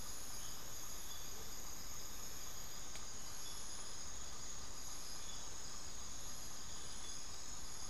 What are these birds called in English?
Amazonian Motmot